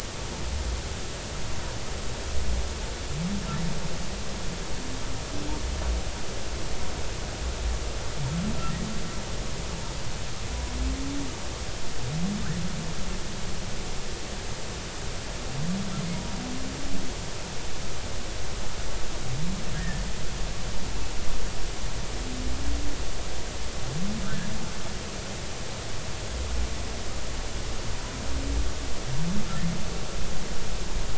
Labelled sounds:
19.7	20.0	humpback whale, 1.6 to 2.0 kHz

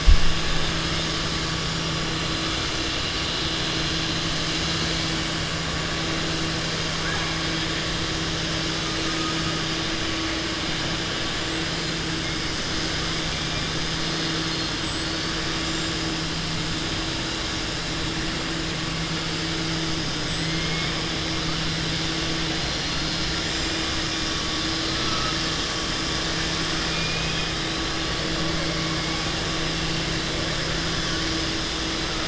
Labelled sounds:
26.8	27.5	killer whale, southern resident, 1.7 to 3.4 kHz

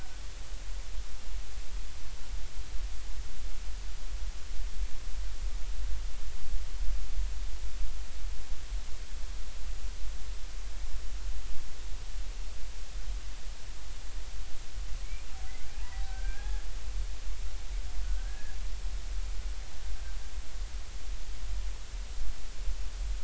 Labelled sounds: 15.7	16.6	killer whale, Bigg's (transient), 0.80 to 1.7 kHz
18.0	18.6	killer whale, Bigg's (transient), 1.4 to 1.9 kHz

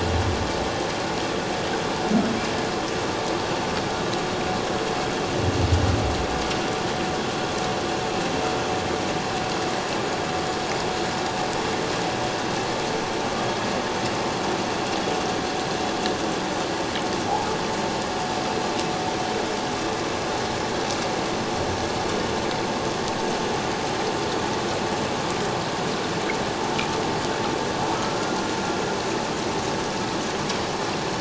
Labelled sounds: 27.9	28.4	humpback whale, 1.2 to 1.5 kHz

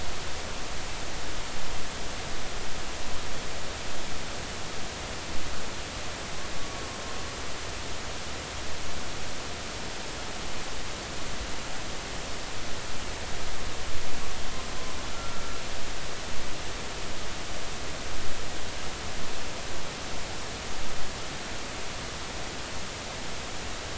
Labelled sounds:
15.1	15.4	humpback whale, 1.2 to 1.4 kHz

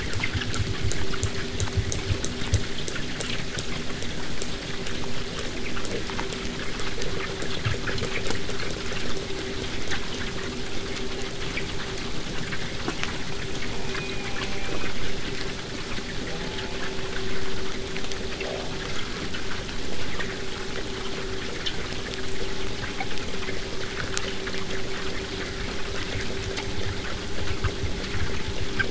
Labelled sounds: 13.8	15.0	killer whale, southern resident, J pod, call S04, 0.58 to 8.0 kHz
16.2	16.8	killer whale, southern resident, J pod, call S04, 0.23 to 1.0 kHz
17.1	22.1	vessel noise, 0 to 8.0 kHz

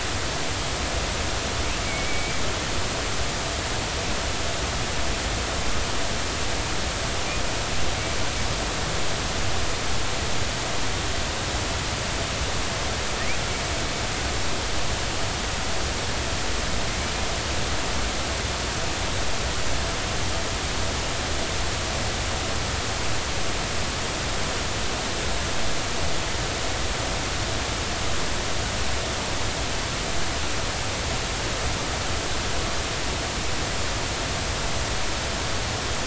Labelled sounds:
1.8	2.4	killer whale, Bigg's (transient), 2.1 to 2.4 kHz

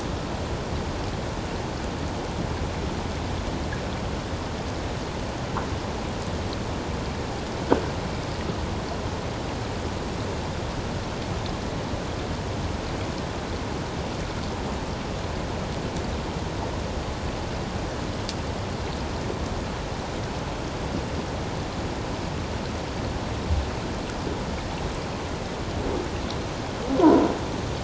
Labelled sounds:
27.0	27.2	croaking sound likely from a nearby submerged object, 0.88 to 1.1 kHz

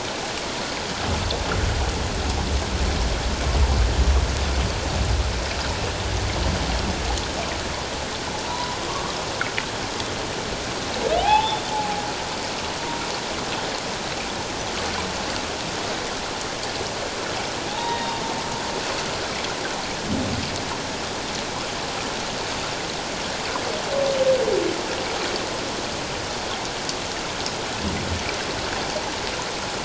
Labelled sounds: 8.5	9.1	humpback whale, 0.88 to 1.2 kHz
11.2	12.0	humpback whale, 0.78 to 3.7 kHz
17.7	18.2	humpback whale, 0.81 to 3.8 kHz

